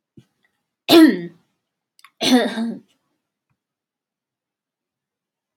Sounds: Throat clearing